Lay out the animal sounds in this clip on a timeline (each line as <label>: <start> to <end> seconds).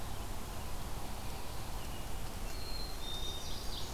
American Robin (Turdus migratorius): 0.0 to 3.0 seconds
Black-capped Chickadee (Poecile atricapillus): 2.4 to 3.5 seconds
Black-throated Green Warbler (Setophaga virens): 2.9 to 3.9 seconds
Ovenbird (Seiurus aurocapilla): 3.1 to 3.9 seconds